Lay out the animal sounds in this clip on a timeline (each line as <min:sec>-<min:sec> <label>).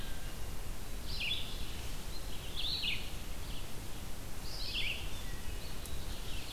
0:00.0-0:00.8 Wood Thrush (Hylocichla mustelina)
0:00.0-0:06.5 Red-eyed Vireo (Vireo olivaceus)
0:05.8-0:06.5 Ovenbird (Seiurus aurocapilla)